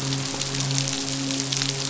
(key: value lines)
label: biophony, midshipman
recorder: SoundTrap 500